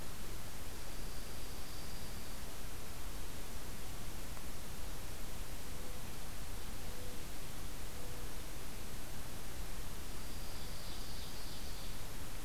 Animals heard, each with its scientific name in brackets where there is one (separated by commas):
Dark-eyed Junco (Junco hyemalis), Ovenbird (Seiurus aurocapilla)